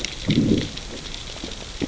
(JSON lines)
{"label": "biophony, growl", "recorder": "SoundTrap 600 or HydroMoth"}